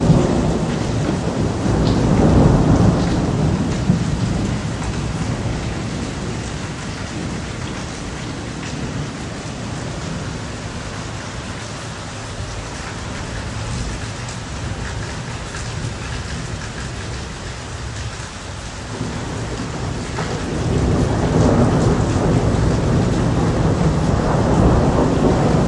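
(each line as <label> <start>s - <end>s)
Harsh thunder bangs frequently nearby. 0.0s - 4.0s
A heavy rain is pouring down. 0.0s - 25.7s
Harsh thunder bangs frequently nearby. 20.7s - 25.7s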